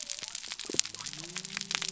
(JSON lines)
{"label": "biophony", "recorder": "SoundTrap 300"}